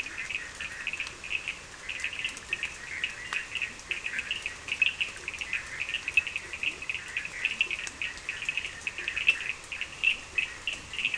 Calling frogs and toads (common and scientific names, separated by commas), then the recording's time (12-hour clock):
Bischoff's tree frog (Boana bischoffi), Cochran's lime tree frog (Sphaenorhynchus surdus), blacksmith tree frog (Boana faber), Leptodactylus latrans
10:30pm